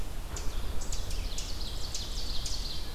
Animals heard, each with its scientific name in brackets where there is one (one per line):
Ovenbird (Seiurus aurocapilla)
Red-eyed Vireo (Vireo olivaceus)